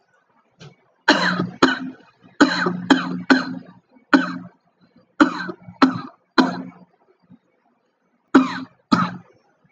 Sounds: Cough